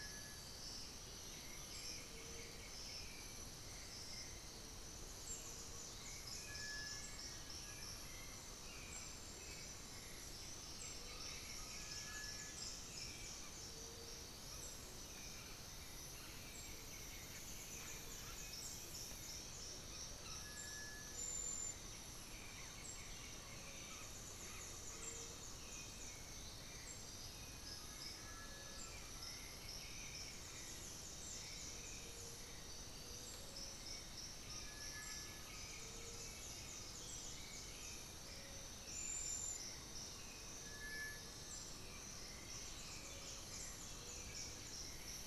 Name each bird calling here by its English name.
Cinereous Tinamou, White-winged Becard, Great Antshrike, Black-billed Thrush, unidentified bird, Undulated Tinamou, Red-bellied Macaw, Piratic Flycatcher, Little Tinamou